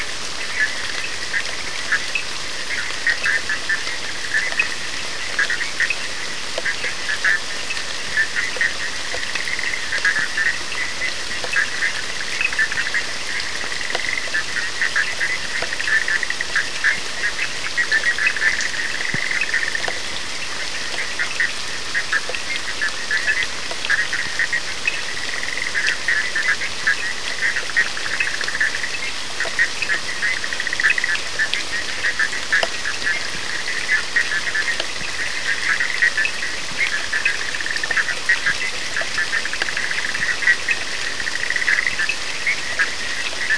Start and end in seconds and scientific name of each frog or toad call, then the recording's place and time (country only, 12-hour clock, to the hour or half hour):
0.3	43.5	Boana bischoffi
0.3	43.5	Sphaenorhynchus surdus
Brazil, ~1am